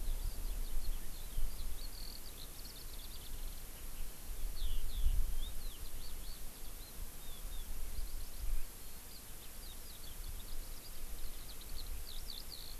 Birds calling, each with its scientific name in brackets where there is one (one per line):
Eurasian Skylark (Alauda arvensis)